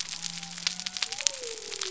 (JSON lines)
{"label": "biophony", "recorder": "SoundTrap 300"}